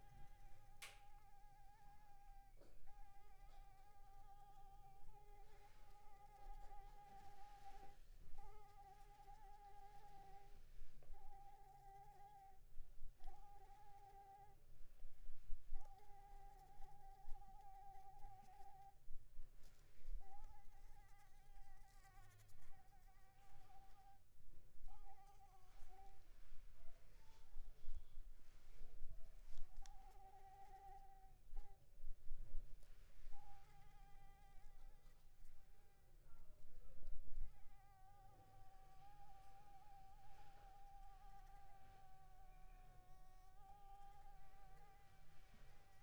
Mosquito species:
Anopheles arabiensis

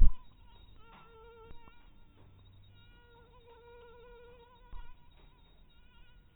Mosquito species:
mosquito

